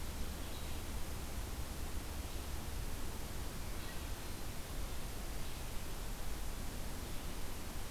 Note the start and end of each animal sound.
[0.32, 7.90] Red-eyed Vireo (Vireo olivaceus)

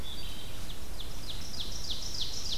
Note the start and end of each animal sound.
[0.00, 0.53] Wood Thrush (Hylocichla mustelina)
[0.37, 2.58] Ovenbird (Seiurus aurocapilla)

